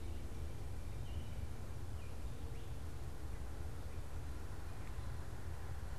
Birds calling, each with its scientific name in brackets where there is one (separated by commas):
unidentified bird